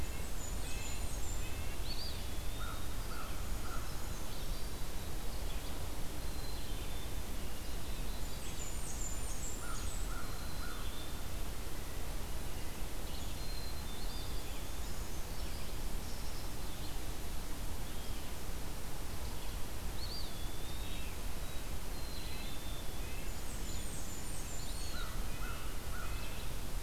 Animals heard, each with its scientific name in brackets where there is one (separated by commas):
Blackburnian Warbler (Setophaga fusca), Red-breasted Nuthatch (Sitta canadensis), Black-capped Chickadee (Poecile atricapillus), Eastern Wood-Pewee (Contopus virens), Brown Creeper (Certhia americana), Red-eyed Vireo (Vireo olivaceus), American Crow (Corvus brachyrhynchos)